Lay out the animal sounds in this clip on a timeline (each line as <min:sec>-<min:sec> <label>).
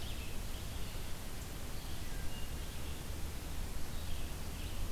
0:00.0-0:04.9 Red-eyed Vireo (Vireo olivaceus)
0:02.1-0:02.7 Wood Thrush (Hylocichla mustelina)